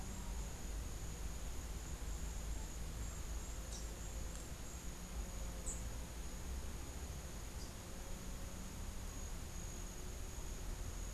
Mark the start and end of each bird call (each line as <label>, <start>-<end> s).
Rufous-capped Warbler (Basileuterus rufifrons), 3.6-4.1 s
Rufous-capped Warbler (Basileuterus rufifrons), 5.4-5.8 s